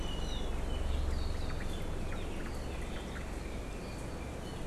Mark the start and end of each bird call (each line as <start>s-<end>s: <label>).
0.0s-0.5s: Iiwi (Drepanis coccinea)
1.3s-1.7s: Omao (Myadestes obscurus)
2.1s-3.3s: Omao (Myadestes obscurus)